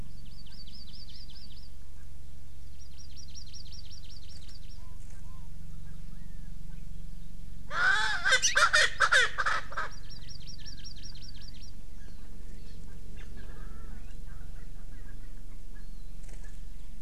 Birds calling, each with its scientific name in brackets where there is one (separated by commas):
Erckel's Francolin (Pternistis erckelii), Hawaii Amakihi (Chlorodrepanis virens)